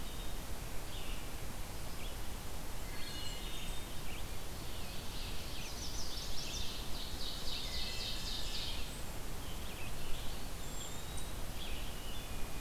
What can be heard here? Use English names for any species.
Black-capped Chickadee, Red-eyed Vireo, Wood Thrush, Blackburnian Warbler, Ovenbird, Chestnut-sided Warbler, Eastern Wood-Pewee, Cedar Waxwing